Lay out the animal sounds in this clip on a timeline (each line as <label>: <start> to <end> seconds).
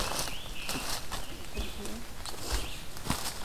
Scarlet Tanager (Piranga olivacea): 0.0 to 0.9 seconds
Red-eyed Vireo (Vireo olivaceus): 0.0 to 3.4 seconds